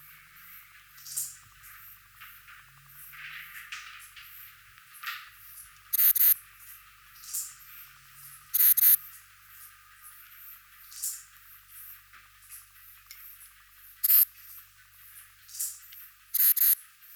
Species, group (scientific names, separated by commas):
Ephippiger diurnus, Orthoptera